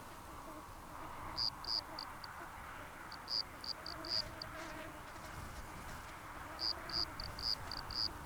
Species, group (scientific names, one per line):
Eumodicogryllus bordigalensis
Orthoptera